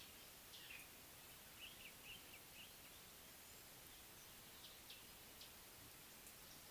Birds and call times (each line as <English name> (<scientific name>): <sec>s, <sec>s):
Common Bulbul (Pycnonotus barbatus): 2.1s